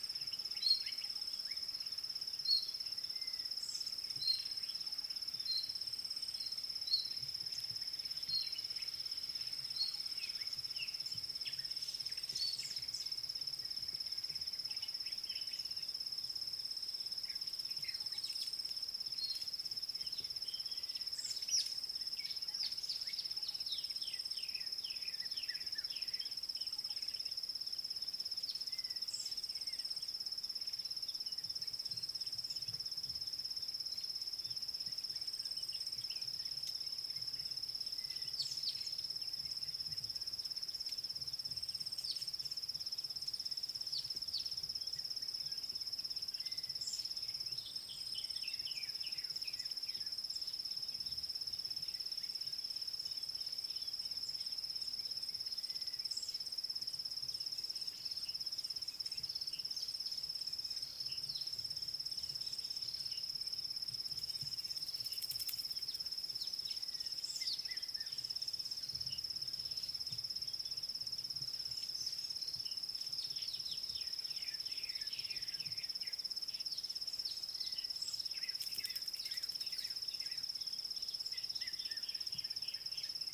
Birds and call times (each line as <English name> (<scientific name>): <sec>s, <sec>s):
Thrush Nightingale (Luscinia luscinia): 2.5s
White Helmetshrike (Prionops plumatus): 23.8s, 48.7s, 74.5s